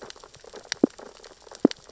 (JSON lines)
{"label": "biophony, sea urchins (Echinidae)", "recorder": "SoundTrap 600 or HydroMoth"}